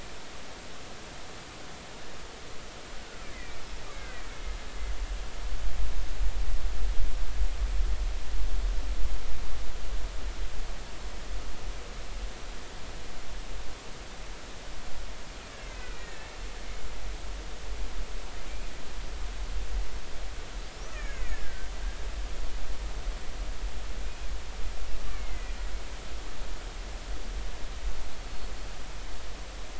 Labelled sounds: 3.3	4.4	killer whale, Bigg's (transient), 1.5 to 2.6 kHz
15.6	16.3	killer whale, Bigg's (transient), 1.7 to 2.2 kHz
20.7	21.7	killer whale, Bigg's (transient), 1.4 to 6.7 kHz
24.0	24.3	killer whale, Bigg's (transient), 2.3 to 2.5 kHz
25.1	25.5	killer whale, Bigg's (transient), 1.9 to 2.6 kHz
28.2	28.5	killer whale, Bigg's (transient), 4.2 to 4.5 kHz

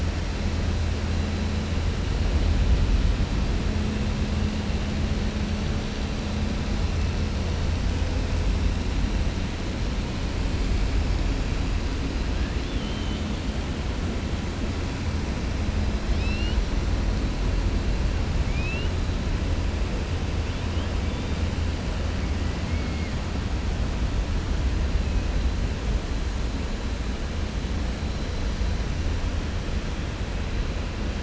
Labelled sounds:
12.5	13.3	killer whale, 2.8 to 4.0 kHz
16.0	16.6	killer whale, 2.5 to 5.6 kHz
18.4	18.9	killer whale, 2.2 to 4.8 kHz
22.6	23.1	killer whale, 1.4 to 2.3 kHz

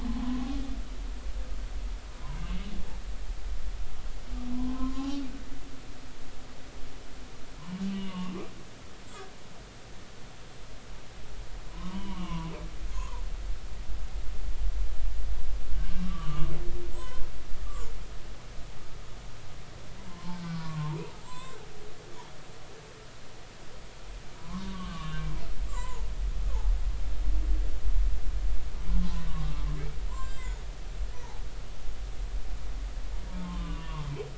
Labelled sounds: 2.4	2.6	humpback whale, 2.6 to 2.9 kHz
4.5	5.2	humpback whale, 0.90 to 2.9 kHz
7.8	8.3	humpback whale, 0.86 to 3.0 kHz
11.7	12.5	humpback whale, 0.90 to 3.2 kHz
12.9	13.2	humpback whale, 0.90 to 1.2 kHz
15.8	16.5	humpback whale, 1.0 to 1.6 kHz
16.9	17.9	humpback whale, 0.93 to 3.2 kHz
20.1	21.6	humpback whale, 0.86 to 8.0 kHz
24.4	25.2	humpback whale, 0.93 to 2.9 kHz
25.7	26.1	humpback whale, 0.83 to 7.7 kHz
29.3	29.7	humpback whale, 1.0 to 1.2 kHz
30.1	30.6	humpback whale, 1.5 to 8.0 kHz
31.1	31.4	humpback whale, 0.80 to 1.0 kHz
33.3	34.1	humpback whale, 0.83 to 3.0 kHz

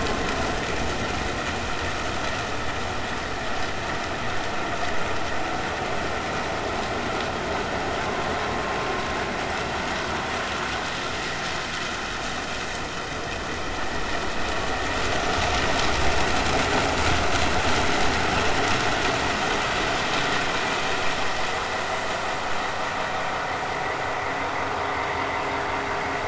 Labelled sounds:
7.7	7.9	vessel noise, 6.5 to 6.7 kHz

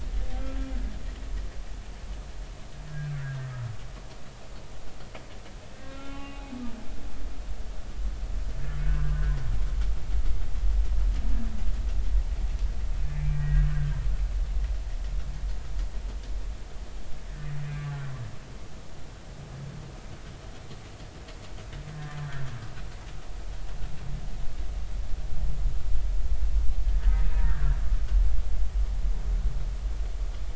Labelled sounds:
2.9	3.5	humpback whale, 1.3 to 1.8 kHz
5.7	6.4	humpback whale, 1.0 to 3.6 kHz
8.8	9.2	humpback whale, 1.2 to 1.7 kHz
13.2	13.7	humpback whale, 1.8 to 2.4 kHz
21.9	22.5	humpback whale, 1.3 to 1.9 kHz
27.2	27.6	humpback whale, 1.7 to 2.6 kHz

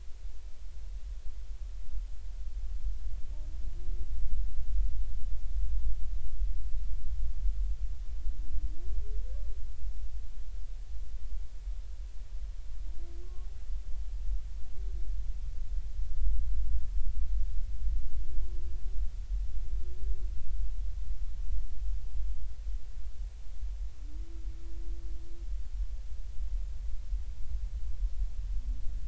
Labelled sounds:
13.2	13.5	humpback whale, 1.0 to 1.2 kHz

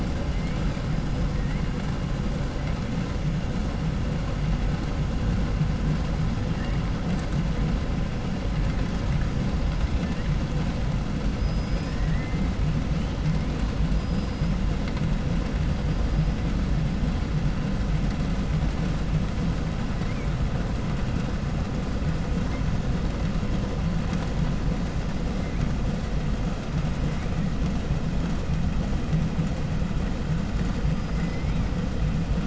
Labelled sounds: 0.3	1.6	killer whale, 1.4 to 8.0 kHz
2.6	2.8	killer whale, 1.5 to 3.9 kHz
6.5	7.0	killer whale, 0.70 to 3.3 kHz
9.2	10.4	killer whale, 1.4 to 8.0 kHz
11.3	12.6	killer whale, 1.0 to 5.9 kHz
13.2	13.6	killer whale, 1.6 to 2.7 kHz
13.9	14.7	killer whale, 4.2 to 5.5 kHz
15.6	16.5	killer whale, 2.0 to 8.0 kHz
20.0	20.3	killer whale, 0.88 to 5.5 kHz
25.4	25.7	killer whale, 1.5 to 2.8 kHz
26.5	27.3	killer whale, 1.5 to 8.0 kHz
30.7	31.6	killer whale, 0.93 to 5.8 kHz

